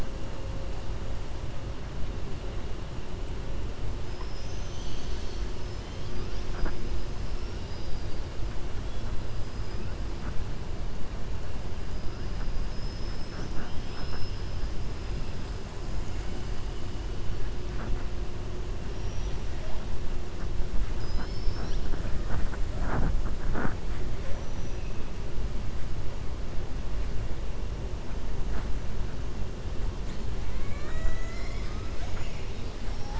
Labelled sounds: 7.2	8.2	killer whale, 3.8 to 5.6 kHz
12.6	13.5	killer whale, 4.8 to 6.3 kHz
20.9	21.9	killer whale, 1.0 to 6.3 kHz

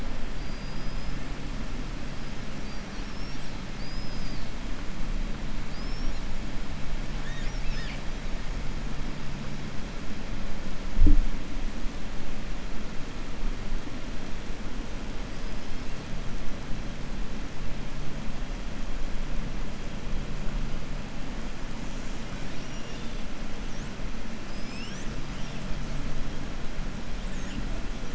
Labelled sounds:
0.3	1.1	killer whale, 4.7 to 5.6 kHz
3.7	4.5	killer whale, 4.0 to 5.3 kHz
5.6	6.2	killer whale, 4.5 to 5.7 kHz
15.3	15.8	killer whale, 4.2 to 5.3 kHz
22.3	23.2	killer whale, 1.5 to 7.0 kHz

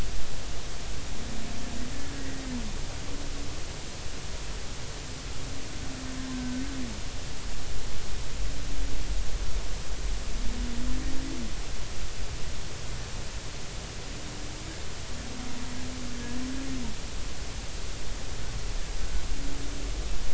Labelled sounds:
1.9	2.4	humpback whale, 1.6 to 2.0 kHz

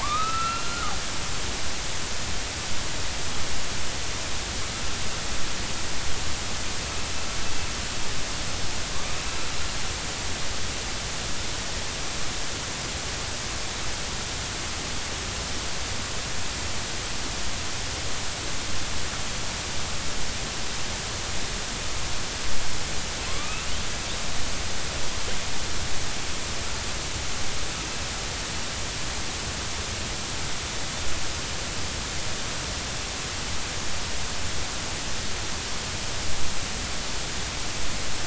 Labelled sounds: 0.0	0.9	killer whale, northern resident, A clan, AB subclan, 0.83 to 2.8 kHz
23.3	23.7	killer whale, northern resident, A clan, AB subclan, 0.99 to 2.8 kHz

